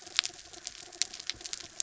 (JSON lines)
{"label": "anthrophony, mechanical", "recorder": "SoundTrap 300"}